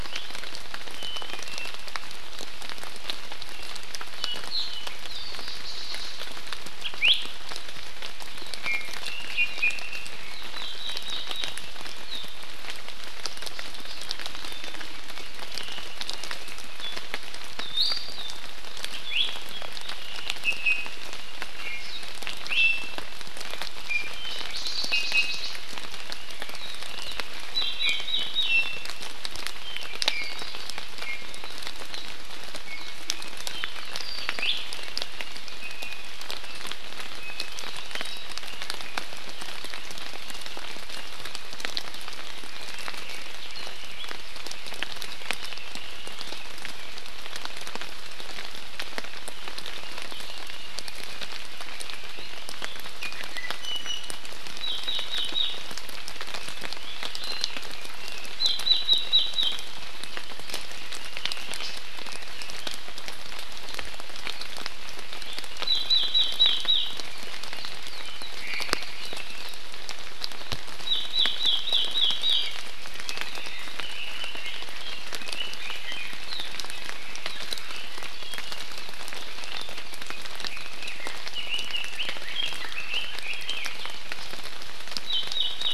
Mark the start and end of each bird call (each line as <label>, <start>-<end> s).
Apapane (Himatione sanguinea), 0.9-1.7 s
Iiwi (Drepanis coccinea), 6.8-7.2 s
Iiwi (Drepanis coccinea), 8.6-8.9 s
Iiwi (Drepanis coccinea), 9.3-9.7 s
Iiwi (Drepanis coccinea), 17.5-18.4 s
Iiwi (Drepanis coccinea), 19.0-19.2 s
Iiwi (Drepanis coccinea), 20.4-20.9 s
Iiwi (Drepanis coccinea), 21.5-21.8 s
Iiwi (Drepanis coccinea), 22.4-22.9 s
Iiwi (Drepanis coccinea), 23.8-24.1 s
Iiwi (Drepanis coccinea), 24.8-25.4 s
Iiwi (Drepanis coccinea), 27.7-28.9 s
Iiwi (Drepanis coccinea), 29.9-30.3 s
Iiwi (Drepanis coccinea), 30.9-31.3 s
Iiwi (Drepanis coccinea), 32.6-32.9 s
Iiwi (Drepanis coccinea), 34.3-34.5 s
Iiwi (Drepanis coccinea), 35.5-36.0 s
Iiwi (Drepanis coccinea), 37.1-37.5 s
Iiwi (Drepanis coccinea), 52.9-54.1 s
Iiwi (Drepanis coccinea), 56.7-57.5 s
Red-billed Leiothrix (Leiothrix lutea), 61.0-62.6 s
Omao (Myadestes obscurus), 68.3-68.8 s
Red-billed Leiothrix (Leiothrix lutea), 73.7-76.1 s
Red-billed Leiothrix (Leiothrix lutea), 81.3-83.9 s